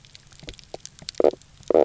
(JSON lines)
{"label": "biophony, knock croak", "recorder": "SoundTrap 300"}